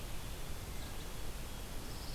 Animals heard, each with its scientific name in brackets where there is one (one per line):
White-throated Sparrow (Zonotrichia albicollis)